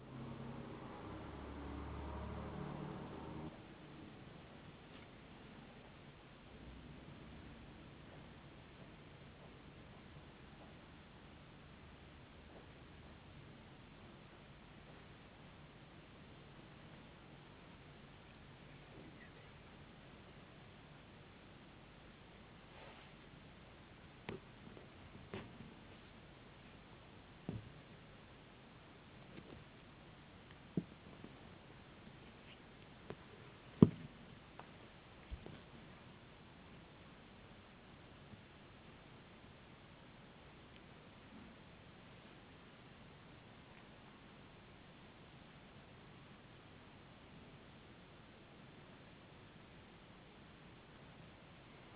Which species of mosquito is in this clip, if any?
no mosquito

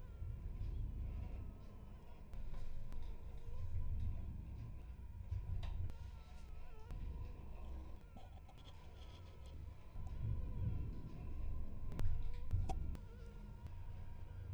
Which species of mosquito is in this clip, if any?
Anopheles gambiae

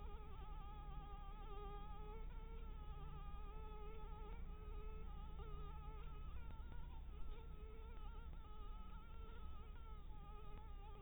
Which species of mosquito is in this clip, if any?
Anopheles maculatus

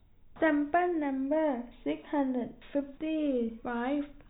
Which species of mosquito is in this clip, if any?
no mosquito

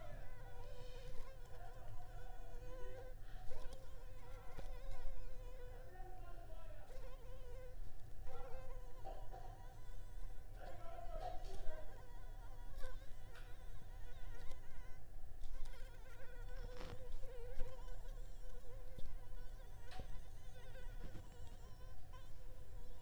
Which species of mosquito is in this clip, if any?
Anopheles arabiensis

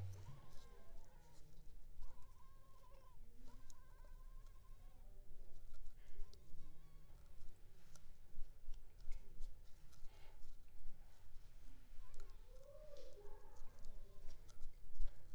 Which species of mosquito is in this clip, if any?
Culex pipiens complex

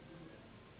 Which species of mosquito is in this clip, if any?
Anopheles gambiae s.s.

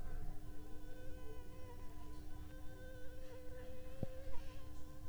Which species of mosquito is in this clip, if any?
Anopheles funestus s.s.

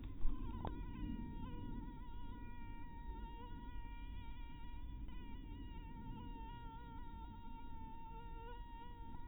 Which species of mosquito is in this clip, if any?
mosquito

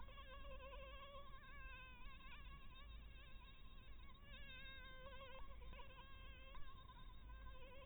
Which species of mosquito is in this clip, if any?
Anopheles dirus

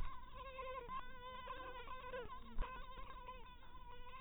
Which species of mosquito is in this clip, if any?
mosquito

